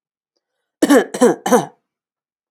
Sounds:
Cough